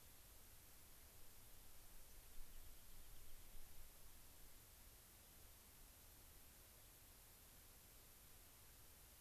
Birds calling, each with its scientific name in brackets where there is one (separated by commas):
Rock Wren (Salpinctes obsoletus), White-crowned Sparrow (Zonotrichia leucophrys)